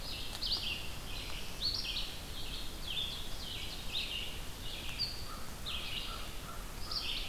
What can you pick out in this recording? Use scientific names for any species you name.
Vireo olivaceus, Seiurus aurocapilla, Corvus brachyrhynchos